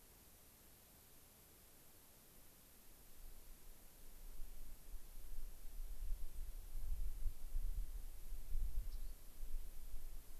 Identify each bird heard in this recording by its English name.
White-crowned Sparrow, Rock Wren